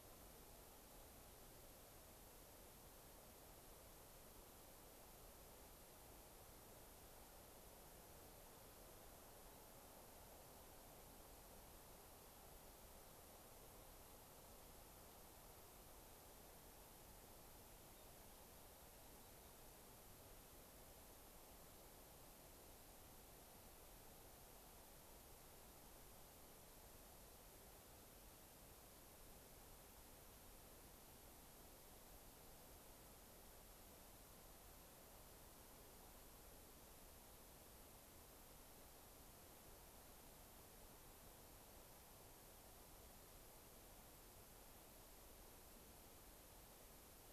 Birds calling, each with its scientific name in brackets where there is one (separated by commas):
unidentified bird